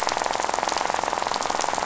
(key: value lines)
label: biophony, rattle
recorder: SoundTrap 500